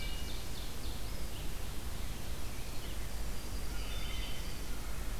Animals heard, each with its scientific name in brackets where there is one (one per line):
Wood Thrush (Hylocichla mustelina)
Red-eyed Vireo (Vireo olivaceus)
Yellow-rumped Warbler (Setophaga coronata)
Ovenbird (Seiurus aurocapilla)